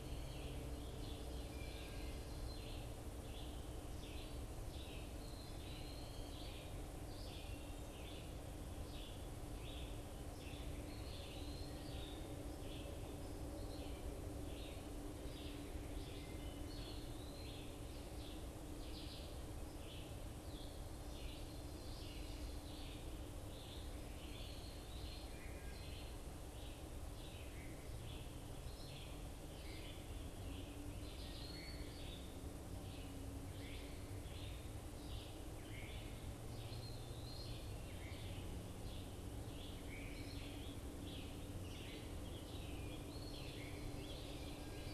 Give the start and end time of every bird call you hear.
0.0s-24.5s: Red-eyed Vireo (Vireo olivaceus)
0.8s-2.8s: Ovenbird (Seiurus aurocapilla)
5.1s-6.3s: Eastern Wood-Pewee (Contopus virens)
10.8s-11.8s: Eastern Wood-Pewee (Contopus virens)
16.5s-17.7s: Eastern Wood-Pewee (Contopus virens)
24.8s-44.9s: Red-eyed Vireo (Vireo olivaceus)
30.9s-32.1s: Eastern Wood-Pewee (Contopus virens)
36.6s-37.6s: Eastern Wood-Pewee (Contopus virens)
42.9s-43.8s: Eastern Wood-Pewee (Contopus virens)

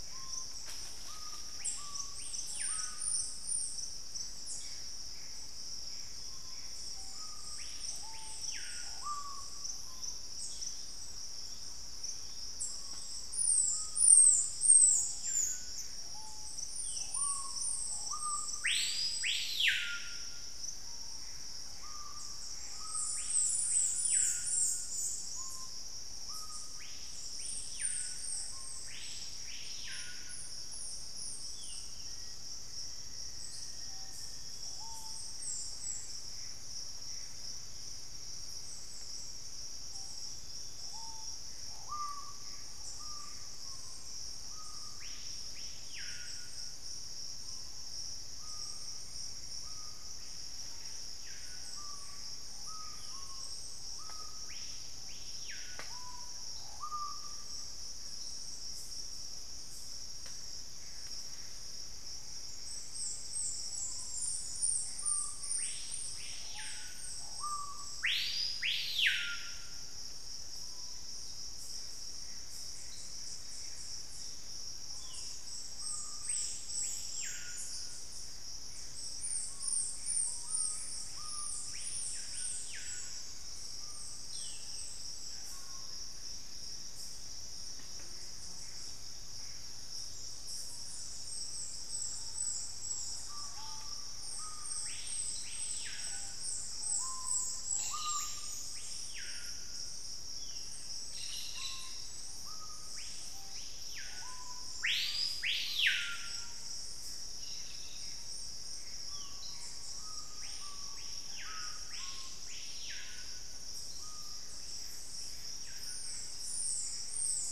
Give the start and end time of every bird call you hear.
0.0s-6.8s: Gray Antbird (Cercomacra cinerascens)
0.0s-58.0s: Screaming Piha (Lipaugus vociferans)
21.1s-23.1s: Gray Antbird (Cercomacra cinerascens)
32.0s-34.7s: Black-faced Antthrush (Formicarius analis)
35.2s-43.9s: Gray Antbird (Cercomacra cinerascens)
60.5s-62.3s: Gray Antbird (Cercomacra cinerascens)
63.3s-86.1s: Screaming Piha (Lipaugus vociferans)
72.0s-74.0s: Gray Antbird (Cercomacra cinerascens)
78.6s-81.3s: Gray Antbird (Cercomacra cinerascens)
87.7s-89.9s: Gray Antbird (Cercomacra cinerascens)
91.9s-94.4s: Thrush-like Wren (Campylorhynchus turdinus)
93.2s-114.8s: Screaming Piha (Lipaugus vociferans)
100.9s-102.0s: Cobalt-winged Parakeet (Brotogeris cyanoptera)
107.1s-108.3s: Cobalt-winged Parakeet (Brotogeris cyanoptera)
107.9s-109.9s: Gray Antbird (Cercomacra cinerascens)
114.7s-117.4s: Gray Antbird (Cercomacra cinerascens)

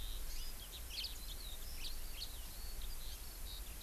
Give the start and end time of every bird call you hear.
0.0s-3.8s: Eurasian Skylark (Alauda arvensis)
0.9s-1.1s: House Finch (Haemorhous mexicanus)
1.7s-2.3s: House Finch (Haemorhous mexicanus)

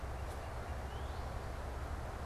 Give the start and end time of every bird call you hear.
0.0s-1.4s: Northern Cardinal (Cardinalis cardinalis)

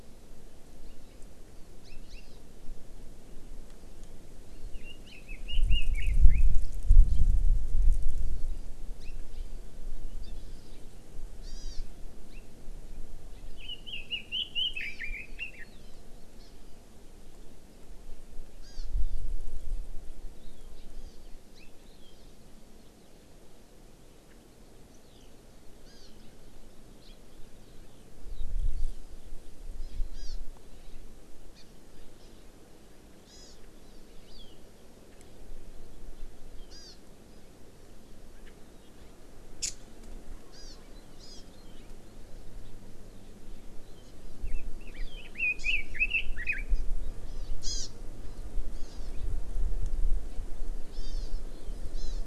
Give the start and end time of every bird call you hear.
1.8s-2.3s: Hawaii Amakihi (Chlorodrepanis virens)
4.7s-6.5s: Red-billed Leiothrix (Leiothrix lutea)
9.0s-9.1s: Hawaii Amakihi (Chlorodrepanis virens)
11.4s-11.8s: Hawaii Amakihi (Chlorodrepanis virens)
13.6s-15.6s: Red-billed Leiothrix (Leiothrix lutea)
14.8s-15.0s: Hawaii Amakihi (Chlorodrepanis virens)
15.8s-16.0s: Hawaii Amakihi (Chlorodrepanis virens)
16.4s-16.5s: Hawaii Amakihi (Chlorodrepanis virens)
18.6s-18.8s: Hawaii Amakihi (Chlorodrepanis virens)
20.9s-21.2s: Hawaii Amakihi (Chlorodrepanis virens)
25.8s-26.1s: Hawaii Amakihi (Chlorodrepanis virens)
28.7s-29.0s: Hawaii Amakihi (Chlorodrepanis virens)
29.8s-30.4s: Hawaii Amakihi (Chlorodrepanis virens)
33.3s-33.6s: Hawaii Amakihi (Chlorodrepanis virens)
34.3s-34.6s: Hawaii Amakihi (Chlorodrepanis virens)
36.7s-37.0s: Hawaii Amakihi (Chlorodrepanis virens)
40.5s-40.8s: Hawaii Amakihi (Chlorodrepanis virens)
41.2s-41.4s: Hawaii Amakihi (Chlorodrepanis virens)
44.4s-46.6s: Red-billed Leiothrix (Leiothrix lutea)
44.9s-45.2s: Hawaii Amakihi (Chlorodrepanis virens)
45.6s-45.7s: Hawaii Amakihi (Chlorodrepanis virens)
46.7s-46.8s: Hawaii Amakihi (Chlorodrepanis virens)
47.3s-47.9s: Hawaii Amakihi (Chlorodrepanis virens)
48.7s-49.1s: Hawaii Amakihi (Chlorodrepanis virens)
50.9s-51.4s: Hawaii Amakihi (Chlorodrepanis virens)
51.9s-52.2s: Hawaii Amakihi (Chlorodrepanis virens)

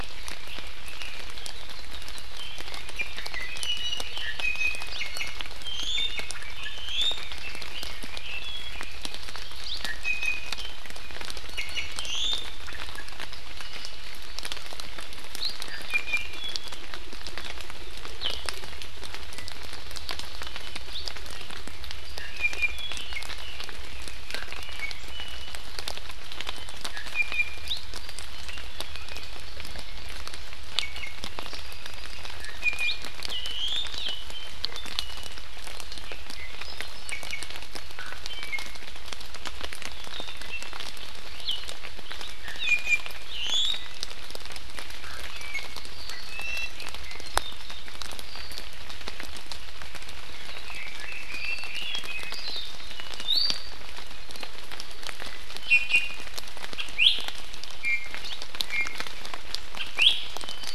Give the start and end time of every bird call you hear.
2.9s-6.3s: Iiwi (Drepanis coccinea)
6.7s-7.3s: Iiwi (Drepanis coccinea)
9.6s-10.7s: Iiwi (Drepanis coccinea)
11.5s-12.4s: Iiwi (Drepanis coccinea)
15.6s-16.7s: Iiwi (Drepanis coccinea)
22.0s-23.2s: Iiwi (Drepanis coccinea)
24.2s-25.5s: Iiwi (Drepanis coccinea)
26.9s-27.8s: Iiwi (Drepanis coccinea)
28.7s-29.3s: Iiwi (Drepanis coccinea)
30.7s-31.2s: Iiwi (Drepanis coccinea)
31.5s-32.2s: Apapane (Himatione sanguinea)
32.4s-33.8s: Iiwi (Drepanis coccinea)
34.6s-35.4s: Iiwi (Drepanis coccinea)
36.9s-37.5s: Iiwi (Drepanis coccinea)
42.4s-43.9s: Iiwi (Drepanis coccinea)
45.3s-45.8s: Iiwi (Drepanis coccinea)
46.2s-46.7s: Iiwi (Drepanis coccinea)
50.6s-52.4s: Red-billed Leiothrix (Leiothrix lutea)
53.1s-53.7s: Iiwi (Drepanis coccinea)
55.6s-56.2s: Iiwi (Drepanis coccinea)
56.9s-57.2s: Iiwi (Drepanis coccinea)
57.8s-58.3s: Iiwi (Drepanis coccinea)
58.6s-58.9s: Iiwi (Drepanis coccinea)
59.9s-60.2s: Iiwi (Drepanis coccinea)

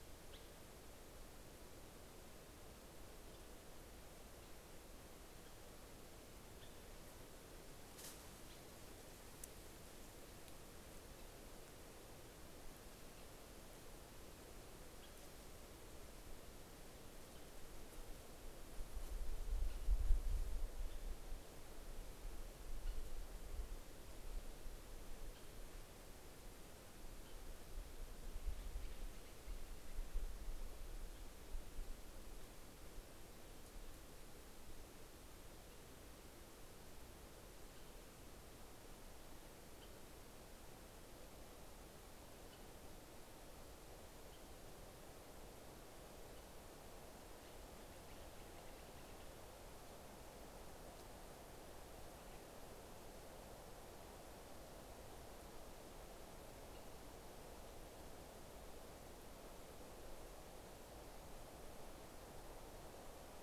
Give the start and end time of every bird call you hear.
21.7s-30.7s: White-headed Woodpecker (Dryobates albolarvatus)
38.6s-49.6s: White-headed Woodpecker (Dryobates albolarvatus)

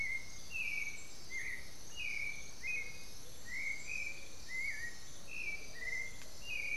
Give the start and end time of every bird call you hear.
0.0s-3.5s: Amazonian Motmot (Momotus momota)
0.0s-6.8s: Black-billed Thrush (Turdus ignobilis)

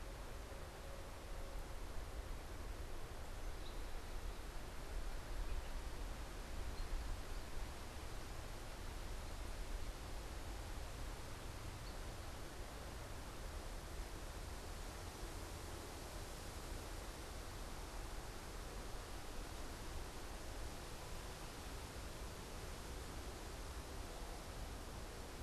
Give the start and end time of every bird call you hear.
3.4s-12.0s: unidentified bird

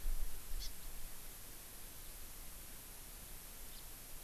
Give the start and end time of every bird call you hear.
0.6s-0.7s: Hawaii Amakihi (Chlorodrepanis virens)
3.7s-3.8s: House Finch (Haemorhous mexicanus)

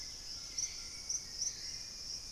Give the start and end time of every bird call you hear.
0.0s-2.3s: Dusky-capped Greenlet (Pachysylvia hypoxantha)
0.0s-2.3s: Hauxwell's Thrush (Turdus hauxwelli)
0.0s-2.3s: Purple-throated Fruitcrow (Querula purpurata)
0.0s-2.3s: White-throated Toucan (Ramphastos tucanus)

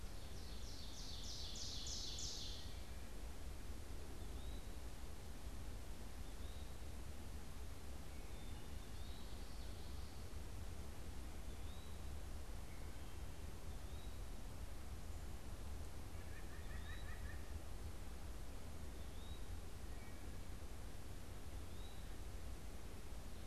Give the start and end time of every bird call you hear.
0.0s-2.8s: Ovenbird (Seiurus aurocapilla)
4.0s-6.9s: Eastern Wood-Pewee (Contopus virens)
7.7s-8.9s: Wood Thrush (Hylocichla mustelina)
8.5s-9.4s: Eastern Wood-Pewee (Contopus virens)
8.6s-10.1s: Common Yellowthroat (Geothlypis trichas)
11.4s-14.4s: Eastern Wood-Pewee (Contopus virens)
15.9s-17.7s: White-breasted Nuthatch (Sitta carolinensis)
16.4s-22.3s: Eastern Wood-Pewee (Contopus virens)
19.7s-20.5s: Wood Thrush (Hylocichla mustelina)

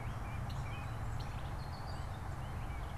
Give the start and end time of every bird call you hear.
0.0s-3.0s: Gray Catbird (Dumetella carolinensis)

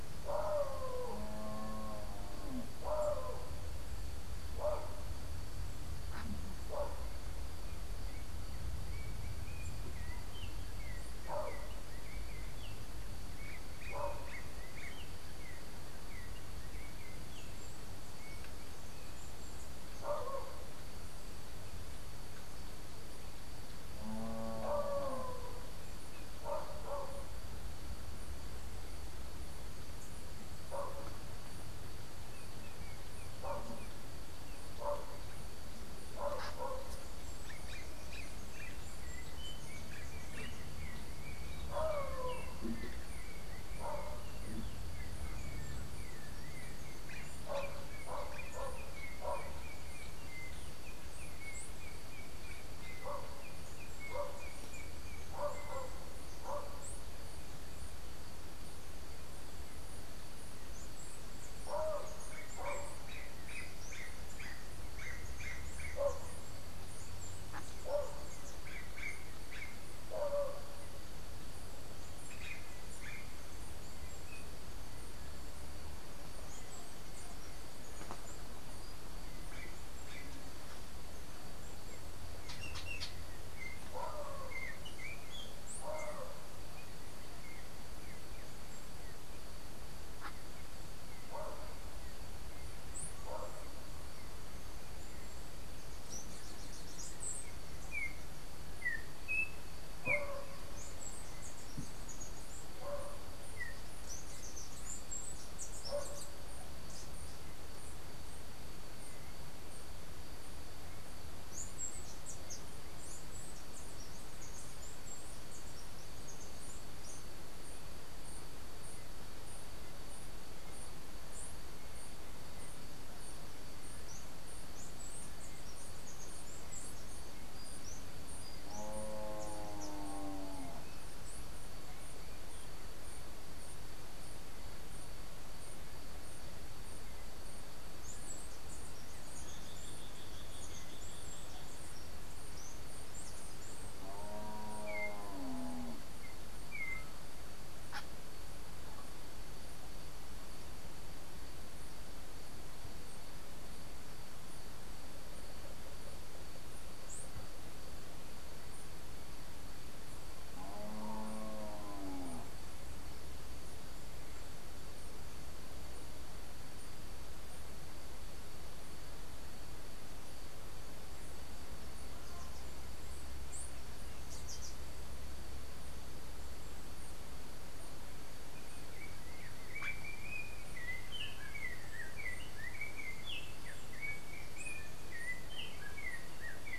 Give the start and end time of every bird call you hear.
7.6s-18.7s: Yellow-backed Oriole (Icterus chrysater)
32.2s-34.7s: Yellow-backed Oriole (Icterus chrysater)
37.3s-38.8s: unidentified bird
39.0s-56.1s: Yellow-backed Oriole (Icterus chrysater)
62.3s-73.5s: unidentified bird
82.4s-88.1s: Yellow-backed Oriole (Icterus chrysater)
97.1s-104.0s: Yellow-backed Oriole (Icterus chrysater)
100.6s-107.4s: Chestnut-capped Brushfinch (Arremon brunneinucha)
111.3s-117.4s: Chestnut-capped Brushfinch (Arremon brunneinucha)
124.0s-130.1s: Chestnut-capped Brushfinch (Arremon brunneinucha)
137.9s-145.0s: Chestnut-capped Brushfinch (Arremon brunneinucha)
139.3s-141.8s: unidentified bird
144.7s-147.1s: Yellow-backed Oriole (Icterus chrysater)
178.3s-186.8s: Yellow-backed Oriole (Icterus chrysater)

